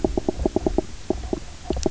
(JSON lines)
{"label": "biophony, knock croak", "recorder": "SoundTrap 300"}